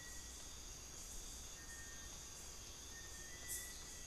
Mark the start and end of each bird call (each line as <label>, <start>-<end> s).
Bartlett's Tinamou (Crypturellus bartletti), 0.1-4.1 s
Amazonian Pygmy-Owl (Glaucidium hardyi), 1.5-4.1 s